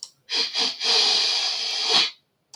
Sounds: Sniff